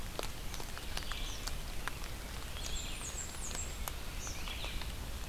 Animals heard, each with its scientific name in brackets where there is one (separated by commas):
Red-eyed Vireo (Vireo olivaceus), Blackburnian Warbler (Setophaga fusca), Eastern Kingbird (Tyrannus tyrannus)